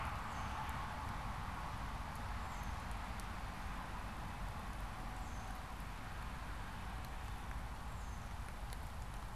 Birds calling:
Tufted Titmouse (Baeolophus bicolor)

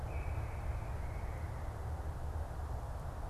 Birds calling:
unidentified bird

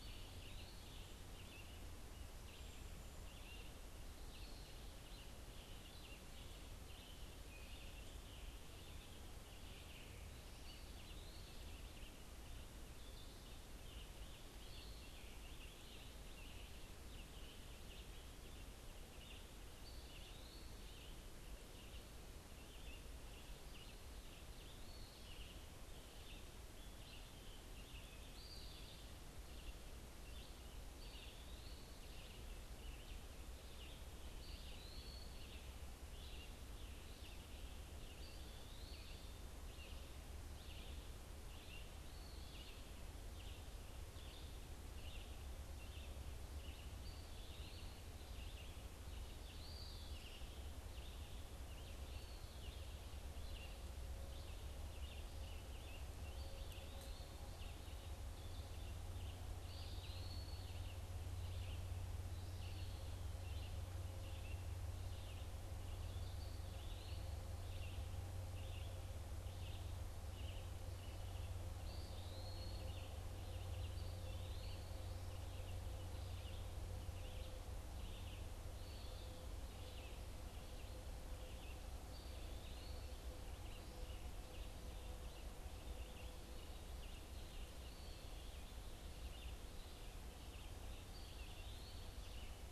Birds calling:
Red-eyed Vireo (Vireo olivaceus), Eastern Wood-Pewee (Contopus virens), Scarlet Tanager (Piranga olivacea)

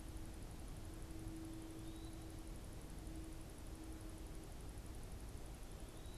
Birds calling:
Eastern Wood-Pewee (Contopus virens)

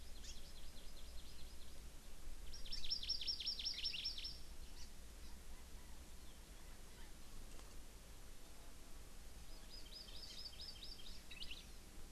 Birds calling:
Chinese Hwamei (Garrulax canorus), Hawaii Amakihi (Chlorodrepanis virens)

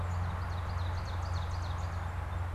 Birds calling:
Northern Cardinal (Cardinalis cardinalis), Song Sparrow (Melospiza melodia)

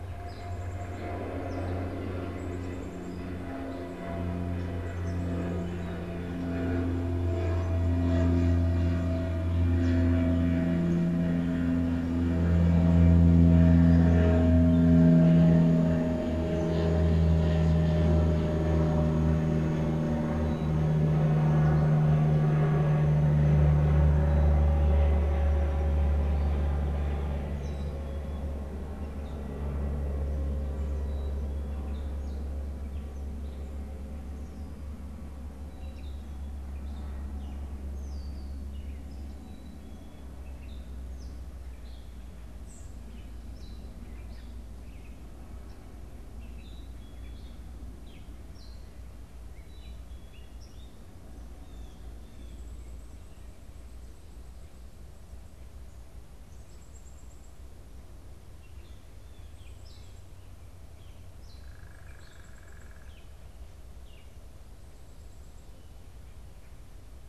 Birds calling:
Blue Jay (Cyanocitta cristata), Red-winged Blackbird (Agelaius phoeniceus), Black-capped Chickadee (Poecile atricapillus), unidentified bird, Gray Catbird (Dumetella carolinensis)

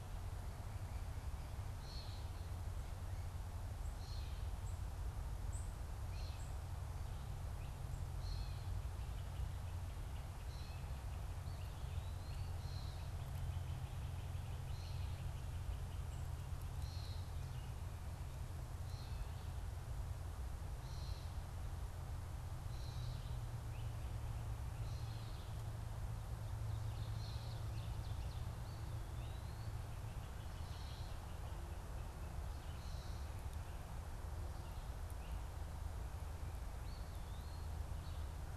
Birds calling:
Eastern Wood-Pewee (Contopus virens), Gray Catbird (Dumetella carolinensis), Great Crested Flycatcher (Myiarchus crinitus), Ovenbird (Seiurus aurocapilla), unidentified bird

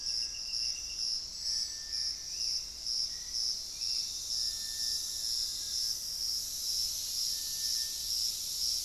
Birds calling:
Gray Antbird (Cercomacra cinerascens), Hauxwell's Thrush (Turdus hauxwelli), Black-faced Antthrush (Formicarius analis)

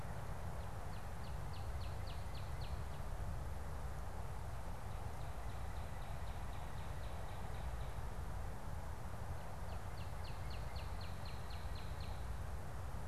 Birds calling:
Northern Cardinal (Cardinalis cardinalis)

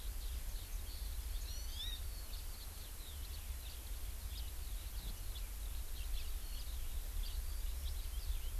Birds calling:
Hawaii Amakihi (Chlorodrepanis virens), House Finch (Haemorhous mexicanus), Eurasian Skylark (Alauda arvensis)

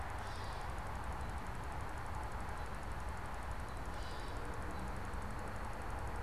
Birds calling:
Gray Catbird (Dumetella carolinensis), American Robin (Turdus migratorius)

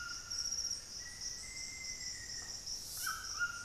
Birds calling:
White-throated Toucan (Ramphastos tucanus), Black-faced Antthrush (Formicarius analis)

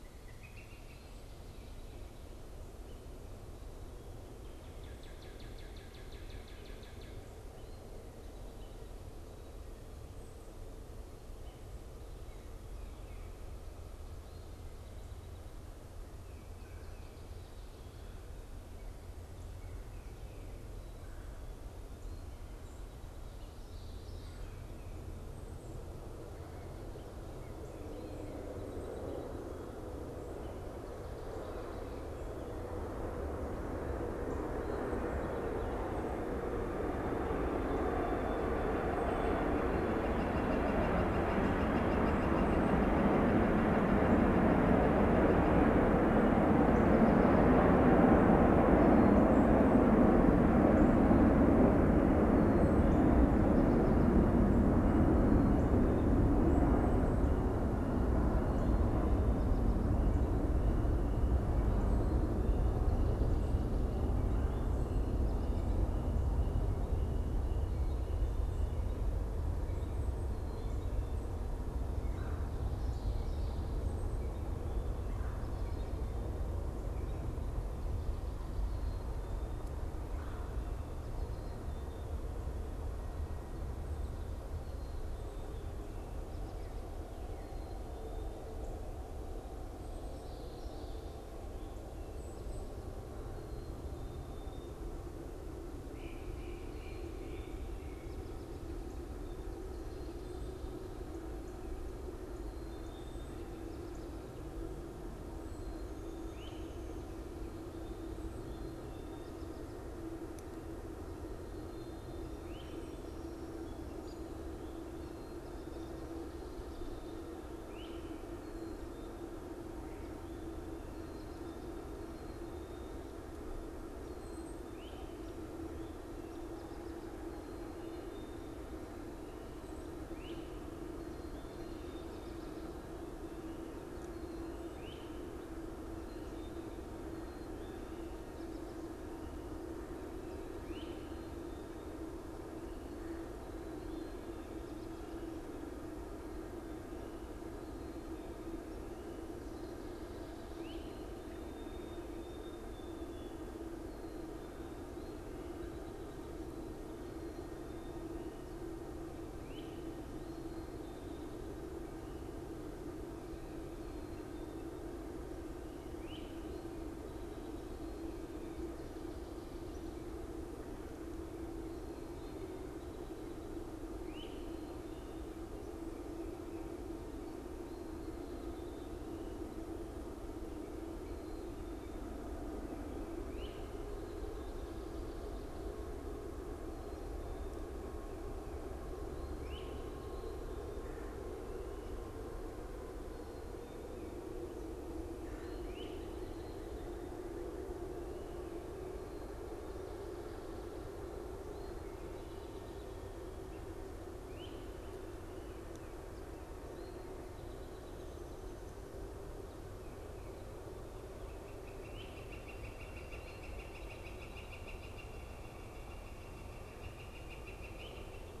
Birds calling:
Northern Cardinal (Cardinalis cardinalis), Black-capped Chickadee (Poecile atricapillus), White-throated Sparrow (Zonotrichia albicollis), Great Crested Flycatcher (Myiarchus crinitus), unidentified bird, American Robin (Turdus migratorius), Northern Flicker (Colaptes auratus), Common Yellowthroat (Geothlypis trichas)

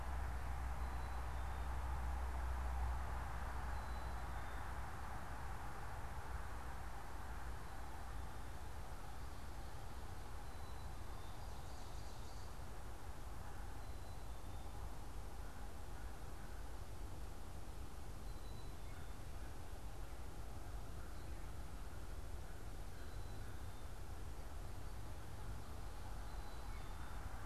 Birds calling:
Black-capped Chickadee (Poecile atricapillus), Ovenbird (Seiurus aurocapilla), American Crow (Corvus brachyrhynchos)

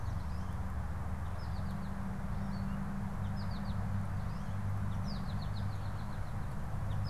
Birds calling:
American Goldfinch (Spinus tristis)

